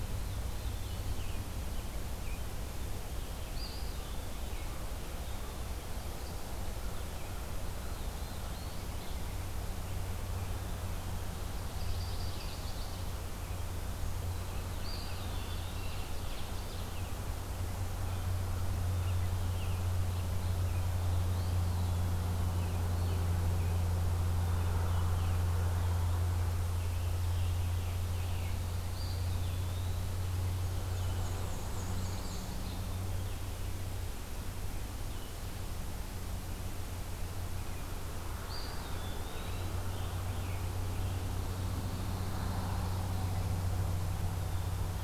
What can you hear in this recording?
Eastern Wood-Pewee, Black-throated Blue Warbler, Chestnut-sided Warbler, Ovenbird, Scarlet Tanager, Black-and-white Warbler, Mourning Warbler